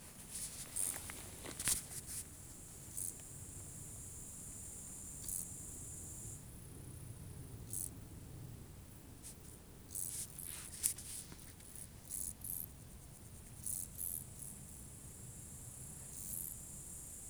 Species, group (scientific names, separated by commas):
Chorthippus brunneus, Orthoptera